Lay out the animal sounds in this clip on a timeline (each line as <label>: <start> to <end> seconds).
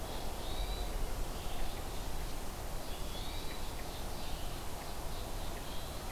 Red-eyed Vireo (Vireo olivaceus): 0.0 to 6.1 seconds
Hermit Thrush (Catharus guttatus): 0.3 to 1.1 seconds
Hermit Thrush (Catharus guttatus): 2.8 to 3.7 seconds